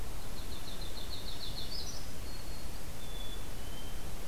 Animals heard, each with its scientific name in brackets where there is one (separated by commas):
Black-throated Green Warbler (Setophaga virens), Yellow-rumped Warbler (Setophaga coronata), Black-capped Chickadee (Poecile atricapillus)